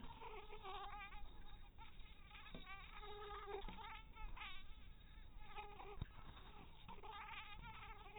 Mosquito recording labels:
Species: mosquito; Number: one; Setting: cup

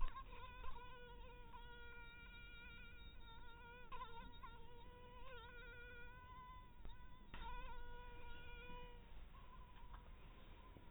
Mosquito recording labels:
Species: mosquito; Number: one; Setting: cup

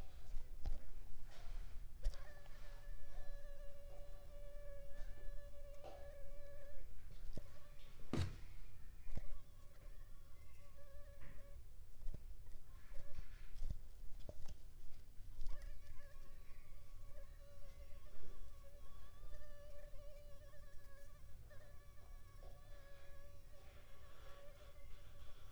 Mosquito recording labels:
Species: Culex pipiens complex; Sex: female; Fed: unfed; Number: one; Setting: cup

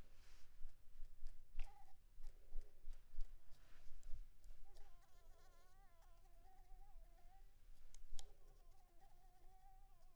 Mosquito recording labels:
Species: Anopheles maculipalpis; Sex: female; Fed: blood-fed; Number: one; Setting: cup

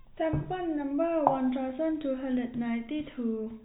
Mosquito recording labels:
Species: no mosquito; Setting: cup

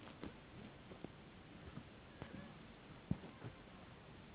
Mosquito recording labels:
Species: Anopheles gambiae s.s.; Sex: female; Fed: unfed; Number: one; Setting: insect culture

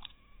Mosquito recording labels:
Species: mosquito; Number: one; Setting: cup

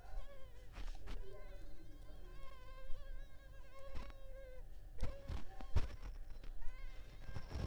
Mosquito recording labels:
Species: Culex pipiens complex; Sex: female; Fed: unfed; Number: one; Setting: cup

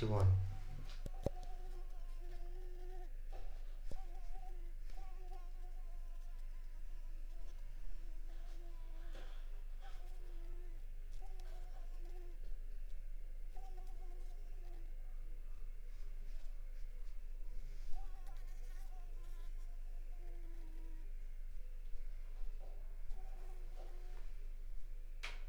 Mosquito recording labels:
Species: Mansonia uniformis; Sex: female; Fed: unfed; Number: one; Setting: cup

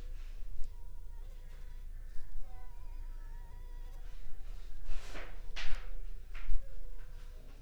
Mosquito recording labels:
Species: Anopheles funestus s.s.; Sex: female; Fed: unfed; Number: one; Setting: cup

